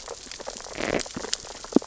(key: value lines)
label: biophony, sea urchins (Echinidae)
recorder: SoundTrap 600 or HydroMoth